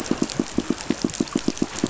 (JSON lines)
{"label": "biophony, pulse", "recorder": "SoundTrap 500"}